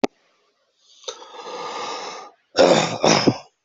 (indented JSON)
{
  "expert_labels": [
    {
      "quality": "no cough present",
      "dyspnea": false,
      "wheezing": false,
      "stridor": false,
      "choking": false,
      "congestion": false,
      "nothing": false
    }
  ],
  "age": 27,
  "gender": "male",
  "respiratory_condition": false,
  "fever_muscle_pain": false,
  "status": "symptomatic"
}